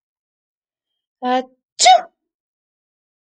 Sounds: Sneeze